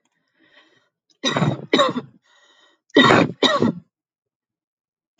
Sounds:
Cough